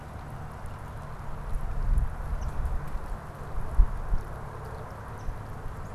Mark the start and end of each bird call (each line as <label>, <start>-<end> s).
Eastern Phoebe (Sayornis phoebe), 2.3-2.6 s